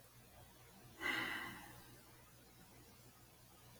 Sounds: Sigh